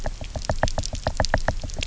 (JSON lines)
{"label": "biophony, knock", "recorder": "SoundTrap 300"}